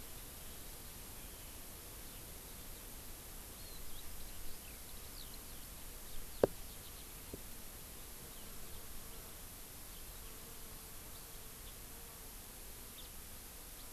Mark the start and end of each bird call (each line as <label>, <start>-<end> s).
Eurasian Skylark (Alauda arvensis), 0.0-7.0 s
Hawaii Amakihi (Chlorodrepanis virens), 3.6-3.8 s
House Finch (Haemorhous mexicanus), 8.3-8.5 s
House Finch (Haemorhous mexicanus), 9.1-9.2 s
House Finch (Haemorhous mexicanus), 11.1-11.2 s
Eurasian Skylark (Alauda arvensis), 11.6-11.8 s
House Finch (Haemorhous mexicanus), 12.9-13.1 s
House Finch (Haemorhous mexicanus), 13.8-13.9 s